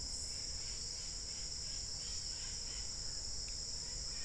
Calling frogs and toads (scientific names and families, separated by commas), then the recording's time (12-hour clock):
none
5:45pm